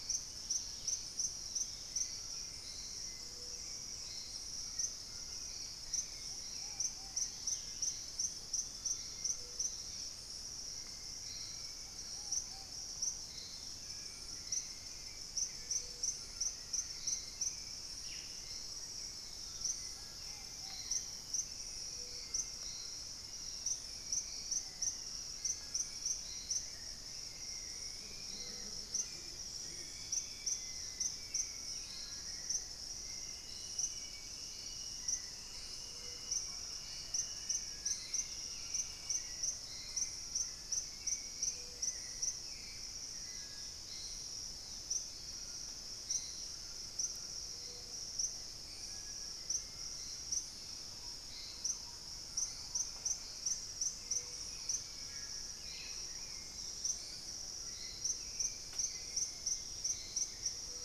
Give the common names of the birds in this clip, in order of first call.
Dusky-capped Greenlet, Ruddy Pigeon, Hauxwell's Thrush, White-throated Toucan, Purple-throated Fruitcrow, unidentified bird, Amazonian Motmot, Black-faced Antthrush, Thrush-like Wren, Dusky-throated Antshrike